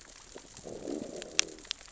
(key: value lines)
label: biophony, growl
recorder: SoundTrap 600 or HydroMoth